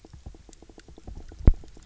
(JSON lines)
{"label": "biophony, knock", "recorder": "SoundTrap 300"}